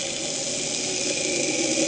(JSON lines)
{"label": "anthrophony, boat engine", "recorder": "HydroMoth"}